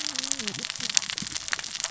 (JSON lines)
{"label": "biophony, cascading saw", "recorder": "SoundTrap 600 or HydroMoth"}